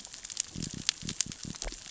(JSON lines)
{"label": "biophony", "recorder": "SoundTrap 600 or HydroMoth"}